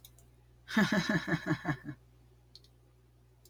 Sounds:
Laughter